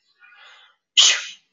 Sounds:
Sneeze